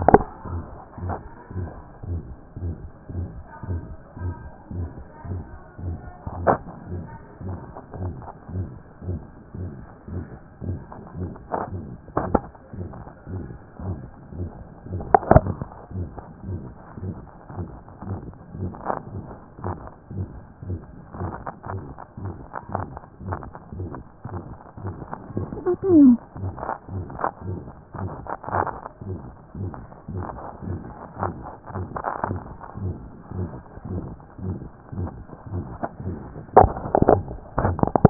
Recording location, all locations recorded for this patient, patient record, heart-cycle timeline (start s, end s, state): aortic valve (AV)
aortic valve (AV)+pulmonary valve (PV)+tricuspid valve (TV)+mitral valve (MV)
#Age: Child
#Sex: Female
#Height: 144.0 cm
#Weight: 38.7 kg
#Pregnancy status: False
#Murmur: Present
#Murmur locations: aortic valve (AV)+mitral valve (MV)+pulmonary valve (PV)+tricuspid valve (TV)
#Most audible location: pulmonary valve (PV)
#Systolic murmur timing: Mid-systolic
#Systolic murmur shape: Diamond
#Systolic murmur grading: III/VI or higher
#Systolic murmur pitch: Medium
#Systolic murmur quality: Blowing
#Diastolic murmur timing: nan
#Diastolic murmur shape: nan
#Diastolic murmur grading: nan
#Diastolic murmur pitch: nan
#Diastolic murmur quality: nan
#Outcome: Abnormal
#Campaign: 2014 screening campaign
0.00	0.50	unannotated
0.50	0.61	S1
0.61	0.66	systole
0.66	0.74	S2
0.74	1.02	diastole
1.02	1.16	S1
1.16	1.24	systole
1.24	1.32	S2
1.32	1.56	diastole
1.56	1.68	S1
1.68	1.76	systole
1.76	1.86	S2
1.86	2.08	diastole
2.08	2.20	S1
2.20	2.30	systole
2.30	2.38	S2
2.38	2.62	diastole
2.62	2.76	S1
2.76	2.82	systole
2.82	2.90	S2
2.90	3.14	diastole
3.14	3.28	S1
3.28	3.36	systole
3.36	3.44	S2
3.44	3.68	diastole
3.68	3.82	S1
3.82	3.90	systole
3.90	3.98	S2
3.98	4.22	diastole
4.22	4.34	S1
4.34	4.44	systole
4.44	4.52	S2
4.52	4.74	diastole
4.74	4.90	S1
4.90	4.98	systole
4.98	5.06	S2
5.06	5.28	diastole
5.28	5.42	S1
5.42	5.52	systole
5.52	5.60	S2
5.60	5.84	diastole
5.84	5.98	S1
5.98	6.06	systole
6.06	6.14	S2
6.14	6.40	diastole
6.40	6.55	S1
6.55	6.65	systole
6.65	6.69	S2
6.69	6.92	diastole
6.92	7.04	S1
7.04	7.12	systole
7.12	7.20	S2
7.20	7.46	diastole
7.46	7.58	S1
7.58	7.66	systole
7.66	7.76	S2
7.76	8.00	diastole
8.00	8.14	S1
8.14	8.22	systole
8.22	8.30	S2
8.30	8.54	diastole
8.54	8.68	S1
8.68	8.74	systole
8.74	8.84	S2
8.84	9.06	diastole
9.06	9.20	S1
9.20	9.30	systole
9.30	9.38	S2
9.38	9.60	diastole
9.60	9.72	S1
9.72	9.80	systole
9.80	9.88	S2
9.88	10.12	diastole
10.12	10.24	S1
10.24	10.32	systole
10.32	10.42	S2
10.42	10.66	diastole
10.66	10.80	S1
10.80	10.90	systole
10.90	11.00	S2
11.00	11.18	diastole
11.18	11.32	S1
11.32	11.42	systole
11.42	11.50	S2
11.50	11.72	diastole
11.72	11.84	S1
11.84	11.92	systole
11.92	12.00	S2
12.00	12.20	diastole
12.20	12.35	S1
12.35	12.39	systole
12.39	12.46	S2
12.46	12.76	diastole
12.76	12.88	S1
12.88	12.98	systole
12.98	13.08	S2
13.08	13.32	diastole
13.32	13.44	S1
13.44	13.52	systole
13.52	13.60	S2
13.60	13.84	diastole
13.84	13.98	S1
13.98	14.06	systole
14.06	14.16	S2
14.16	14.38	diastole
14.38	14.50	S1
14.50	14.56	systole
14.56	14.66	S2
14.66	14.92	diastole
14.92	15.04	S1
15.04	15.12	systole
15.12	15.20	S2
15.20	15.42	diastole
15.42	15.55	S1
15.55	15.63	systole
15.63	15.72	S2
15.72	15.91	diastole
15.91	16.07	S1
16.07	16.18	systole
16.18	16.26	S2
16.26	16.48	diastole
16.48	16.60	S1
16.60	16.68	systole
16.68	16.78	S2
16.78	17.02	diastole
17.02	17.14	S1
17.14	17.24	systole
17.24	17.34	S2
17.34	17.56	diastole
17.56	17.68	S1
17.68	17.76	systole
17.76	17.86	S2
17.86	18.08	diastole
18.08	18.20	S1
18.20	18.26	systole
18.26	18.36	S2
18.36	18.58	diastole
18.58	18.72	S1
18.72	18.83	systole
18.83	18.96	S2
18.96	19.14	diastole
19.14	19.24	S1
19.24	19.32	systole
19.32	19.44	S2
19.44	19.64	diastole
19.64	19.74	S1
19.74	19.84	systole
19.84	19.94	S2
19.94	20.16	diastole
20.16	20.28	S1
20.28	20.36	systole
20.36	20.44	S2
20.44	20.68	diastole
20.68	20.80	S1
20.80	20.90	systole
20.90	21.00	S2
21.00	21.20	diastole
21.20	21.32	S1
21.32	21.42	systole
21.42	21.52	S2
21.52	21.72	diastole
21.72	21.82	S1
21.82	21.90	systole
21.90	22.00	S2
22.00	22.22	diastole
22.22	22.34	S1
22.34	22.42	systole
22.42	22.52	S2
22.52	22.74	diastole
22.74	22.86	S1
22.86	22.92	systole
22.92	23.02	S2
23.02	23.26	diastole
23.26	23.38	S1
23.38	23.46	systole
23.46	23.54	S2
23.54	23.78	diastole
23.78	23.90	S1
23.90	23.98	systole
23.98	24.06	S2
24.06	24.30	diastole
24.30	24.42	S1
24.42	24.50	systole
24.50	24.60	S2
24.60	24.84	diastole
24.84	24.94	S1
24.94	25.00	systole
25.00	25.10	S2
25.10	25.36	diastole
25.36	25.46	S1
25.46	25.53	systole
25.53	25.60	S2
25.60	25.86	diastole
25.86	25.98	S1
25.98	26.12	systole
26.12	26.20	S2
26.20	26.42	diastole
26.42	26.54	S1
26.54	26.64	systole
26.64	26.72	S2
26.72	26.94	diastole
26.94	27.06	S1
27.06	27.16	systole
27.16	27.26	S2
27.26	27.46	diastole
27.46	27.60	S1
27.60	27.68	systole
27.68	27.78	S2
27.78	28.00	diastole
28.00	28.12	S1
28.12	28.20	systole
28.20	28.30	S2
28.30	28.54	diastole
28.54	28.66	S1
28.66	28.74	systole
28.74	28.84	S2
28.84	29.08	diastole
29.08	29.18	S1
29.18	29.26	systole
29.26	29.36	S2
29.36	29.58	diastole
29.58	29.72	S1
29.72	29.80	systole
29.80	29.88	S2
29.88	30.14	diastole
30.14	30.26	S1
30.26	30.34	systole
30.34	30.44	S2
30.44	30.66	diastole
30.66	30.80	S1
30.80	30.88	systole
30.88	30.98	S2
30.98	31.22	diastole
31.22	31.34	S1
31.34	31.42	systole
31.42	31.52	S2
31.52	31.76	diastole
31.76	31.88	S1
31.88	31.96	systole
31.96	32.04	S2
32.04	32.28	diastole
32.28	32.40	S1
32.40	32.50	systole
32.50	32.58	S2
32.58	32.82	diastole
32.82	32.96	S1
32.96	33.04	systole
33.04	33.12	S2
33.12	33.36	diastole
33.36	33.50	S1
33.50	33.56	systole
33.56	33.66	S2
33.66	33.90	diastole
33.90	34.02	S1
34.02	34.10	systole
34.10	34.18	S2
34.18	34.44	diastole
34.44	34.58	S1
34.58	34.64	systole
34.64	34.72	S2
34.72	34.96	diastole
34.96	35.10	S1
35.10	35.18	systole
35.18	35.26	S2
35.26	35.52	diastole
35.52	35.66	S1
35.66	35.80	systole
35.80	35.88	S2
35.88	38.10	unannotated